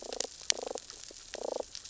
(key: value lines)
label: biophony, damselfish
recorder: SoundTrap 600 or HydroMoth